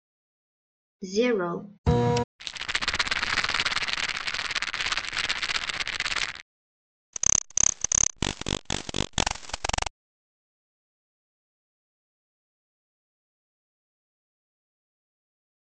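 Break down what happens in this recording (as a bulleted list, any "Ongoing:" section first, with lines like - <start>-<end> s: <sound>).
- 1.03-1.61 s: someone says "zero"
- 1.84-2.24 s: you can hear a printer
- 2.39-6.43 s: there is rattling
- 7.13-9.91 s: an insect can be heard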